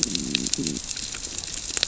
{"label": "biophony, growl", "recorder": "SoundTrap 600 or HydroMoth"}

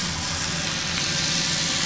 {"label": "anthrophony, boat engine", "recorder": "SoundTrap 500"}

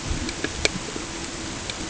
{"label": "ambient", "recorder": "HydroMoth"}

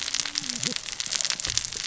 {"label": "biophony, cascading saw", "recorder": "SoundTrap 600 or HydroMoth"}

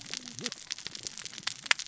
{"label": "biophony, cascading saw", "recorder": "SoundTrap 600 or HydroMoth"}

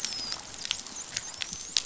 {"label": "biophony, dolphin", "recorder": "SoundTrap 500"}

